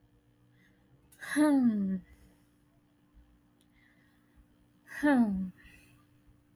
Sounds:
Sigh